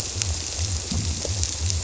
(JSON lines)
{"label": "biophony", "recorder": "SoundTrap 300"}